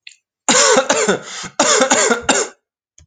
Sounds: Cough